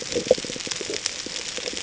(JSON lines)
{"label": "ambient", "recorder": "HydroMoth"}